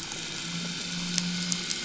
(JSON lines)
{"label": "anthrophony, boat engine", "recorder": "SoundTrap 500"}